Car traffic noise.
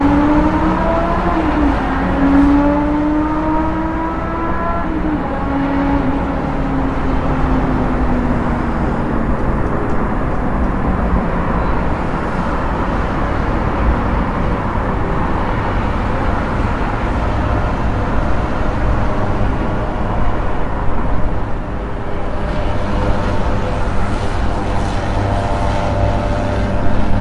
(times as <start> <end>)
9.1 22.3